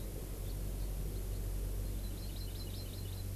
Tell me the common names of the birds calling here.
Hawaii Amakihi